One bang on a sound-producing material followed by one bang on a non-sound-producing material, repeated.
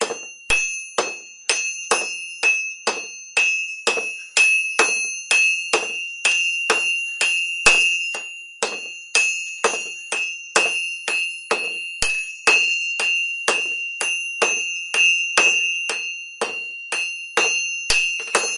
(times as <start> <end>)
4.3 6.0